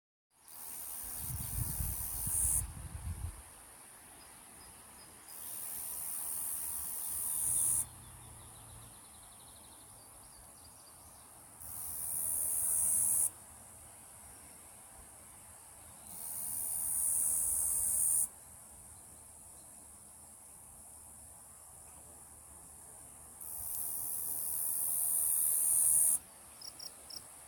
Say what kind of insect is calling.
cicada